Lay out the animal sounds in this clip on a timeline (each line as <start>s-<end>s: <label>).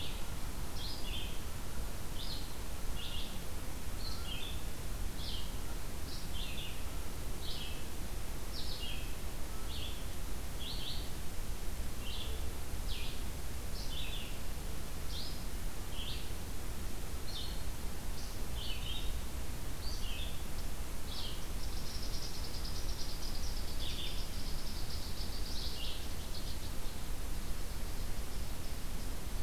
0.0s-20.5s: Red-eyed Vireo (Vireo olivaceus)
21.0s-26.1s: Red-eyed Vireo (Vireo olivaceus)
21.4s-29.4s: unidentified call